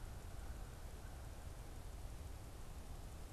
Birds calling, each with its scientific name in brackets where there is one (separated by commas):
American Crow (Corvus brachyrhynchos)